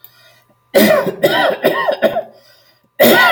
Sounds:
Cough